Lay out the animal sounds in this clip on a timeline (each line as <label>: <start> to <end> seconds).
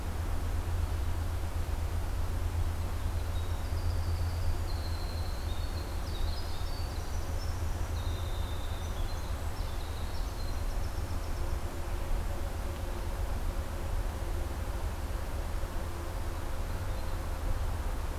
Winter Wren (Troglodytes hiemalis): 3.3 to 12.0 seconds